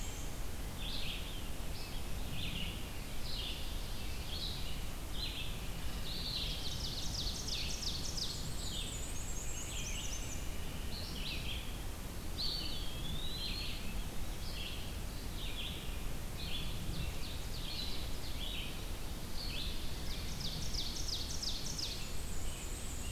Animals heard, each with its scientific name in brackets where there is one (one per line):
Red-eyed Vireo (Vireo olivaceus)
Eastern Wood-Pewee (Contopus virens)
Black-and-white Warbler (Mniotilta varia)
Ovenbird (Seiurus aurocapilla)